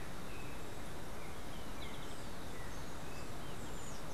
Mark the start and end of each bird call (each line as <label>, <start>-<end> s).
Golden-faced Tyrannulet (Zimmerius chrysops), 1.6-4.0 s